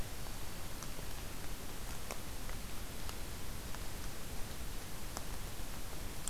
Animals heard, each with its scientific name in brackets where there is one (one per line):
Black-throated Green Warbler (Setophaga virens)